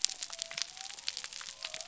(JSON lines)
{"label": "biophony", "recorder": "SoundTrap 300"}